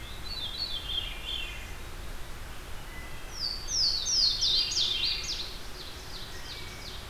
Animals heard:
Wood Thrush (Hylocichla mustelina), Veery (Catharus fuscescens), Ovenbird (Seiurus aurocapilla), Louisiana Waterthrush (Parkesia motacilla)

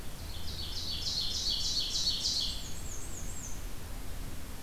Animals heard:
Ovenbird (Seiurus aurocapilla), Black-and-white Warbler (Mniotilta varia)

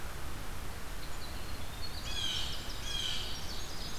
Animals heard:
Blue Jay (Cyanocitta cristata), Winter Wren (Troglodytes hiemalis), Ovenbird (Seiurus aurocapilla)

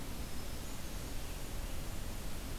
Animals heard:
Hermit Thrush (Catharus guttatus), Red-eyed Vireo (Vireo olivaceus)

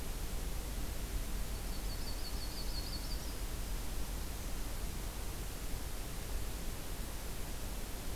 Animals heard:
Yellow-rumped Warbler (Setophaga coronata)

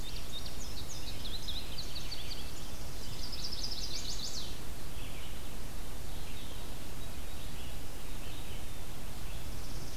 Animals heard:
Chestnut-sided Warbler (Setophaga pensylvanica), Indigo Bunting (Passerina cyanea), Northern Parula (Setophaga americana), Red-eyed Vireo (Vireo olivaceus)

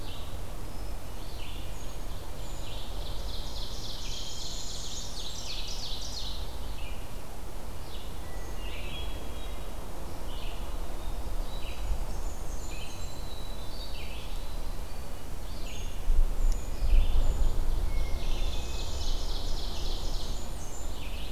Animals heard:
Ovenbird (Seiurus aurocapilla), Hermit Thrush (Catharus guttatus), Northern Parula (Setophaga americana), Red-eyed Vireo (Vireo olivaceus), Blackburnian Warbler (Setophaga fusca), Winter Wren (Troglodytes hiemalis), Black-capped Chickadee (Poecile atricapillus)

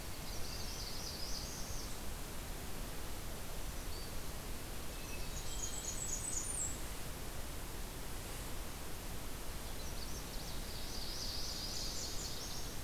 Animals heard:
Hermit Thrush (Catharus guttatus), Magnolia Warbler (Setophaga magnolia), Nashville Warbler (Leiothlypis ruficapilla), Northern Parula (Setophaga americana), Blackburnian Warbler (Setophaga fusca), Black-throated Green Warbler (Setophaga virens)

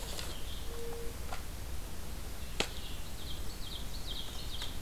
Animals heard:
Ovenbird (Seiurus aurocapilla), Red-eyed Vireo (Vireo olivaceus), Mourning Dove (Zenaida macroura)

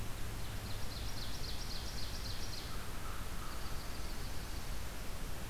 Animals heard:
American Crow (Corvus brachyrhynchos), Ovenbird (Seiurus aurocapilla), Dark-eyed Junco (Junco hyemalis)

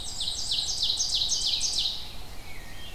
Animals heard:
Black-and-white Warbler (Mniotilta varia), Ovenbird (Seiurus aurocapilla), Red-eyed Vireo (Vireo olivaceus)

